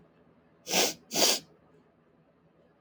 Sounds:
Sniff